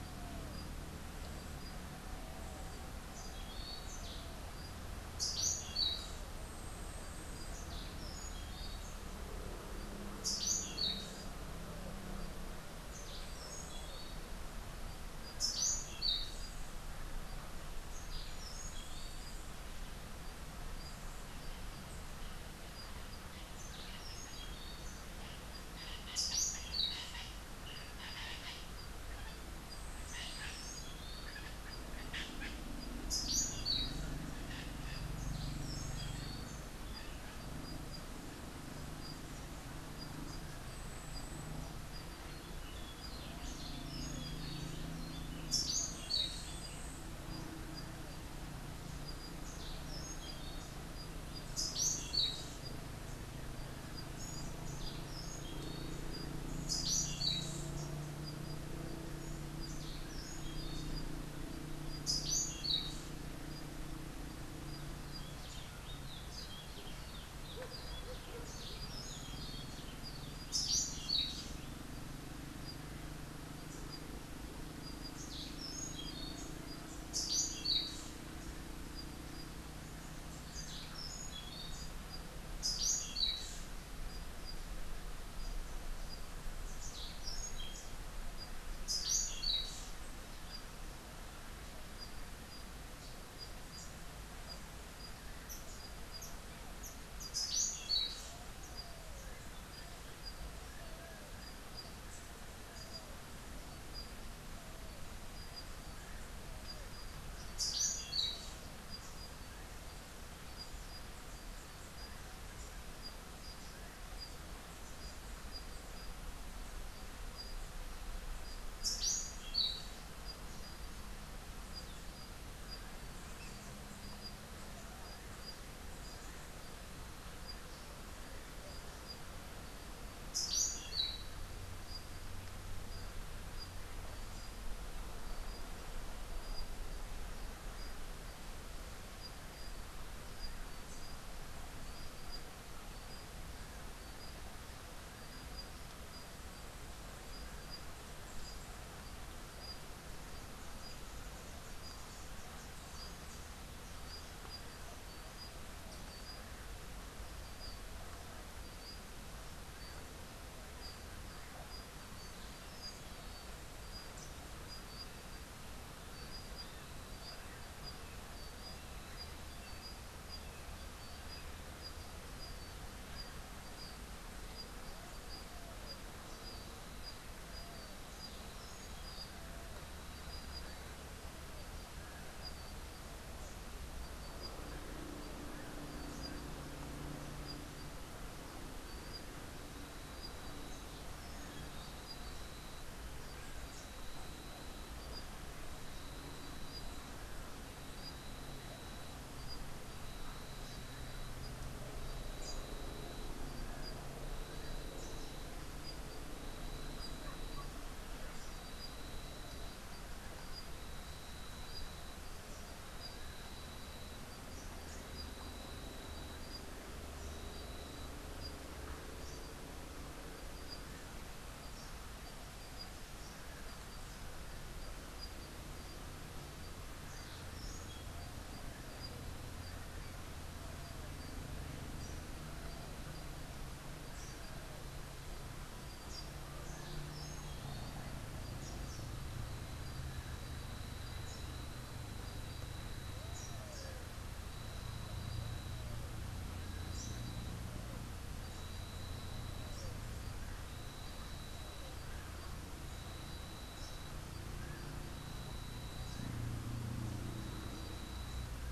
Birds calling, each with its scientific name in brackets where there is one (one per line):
White-fronted Parrot (Amazona albifrons)
Orange-billed Nightingale-Thrush (Catharus aurantiirostris)